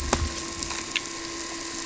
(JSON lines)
{"label": "anthrophony, boat engine", "recorder": "SoundTrap 300"}